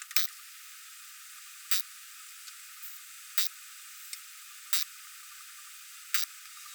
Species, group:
Poecilimon zimmeri, Orthoptera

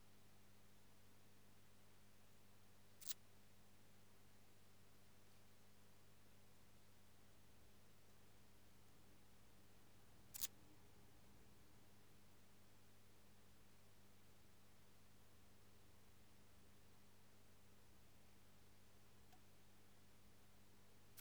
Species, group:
Tessellana lagrecai, Orthoptera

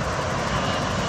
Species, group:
Tettigettalna argentata, Cicadidae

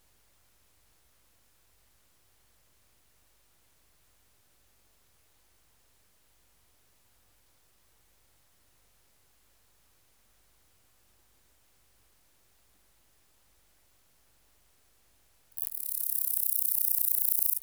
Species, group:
Omocestus haemorrhoidalis, Orthoptera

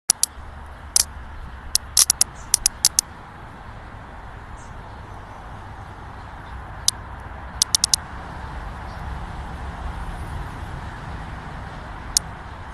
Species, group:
Magicicada septendecula, Cicadidae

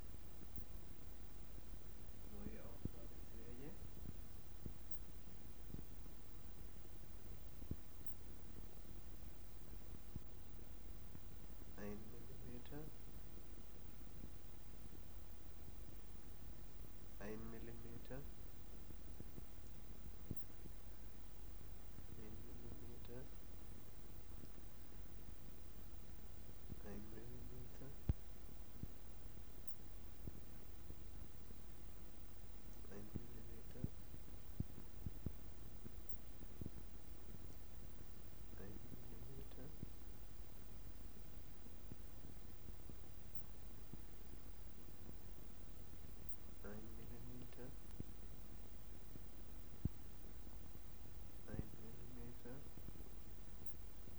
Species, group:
Poecilimon zimmeri, Orthoptera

